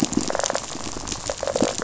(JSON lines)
{"label": "biophony, rattle response", "recorder": "SoundTrap 500"}